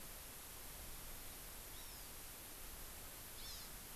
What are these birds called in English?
Hawaii Amakihi